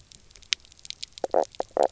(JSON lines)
{"label": "biophony, knock croak", "recorder": "SoundTrap 300"}